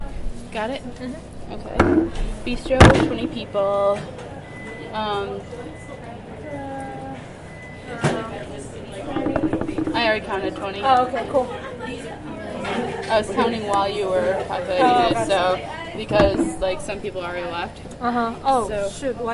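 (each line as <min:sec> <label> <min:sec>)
0:00.0 Several people are chatting indoors. 0:19.3
0:00.4 A woman is speaking indoors. 0:05.9
0:01.0 A woman hums approvingly. 0:01.3
0:01.8 An object is clattering indoors. 0:03.4
0:03.4 A microwave beeps steadily. 0:08.1
0:08.9 A woman is talking indoors. 0:10.1
0:09.1 An object is clattering indoors. 0:10.5
0:09.9 A woman is speaking indoors. 0:11.9
0:13.0 A woman is talking indoors. 0:19.3
0:16.0 An object is clattering indoors. 0:16.7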